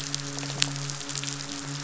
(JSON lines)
{"label": "biophony, midshipman", "recorder": "SoundTrap 500"}
{"label": "biophony", "recorder": "SoundTrap 500"}